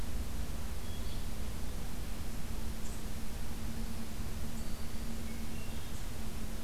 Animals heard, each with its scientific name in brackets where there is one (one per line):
Yellow-bellied Flycatcher (Empidonax flaviventris)
Black-throated Green Warbler (Setophaga virens)
Hermit Thrush (Catharus guttatus)